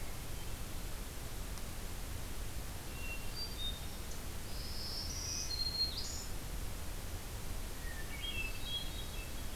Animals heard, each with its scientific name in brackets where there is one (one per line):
Hermit Thrush (Catharus guttatus)
Black-throated Green Warbler (Setophaga virens)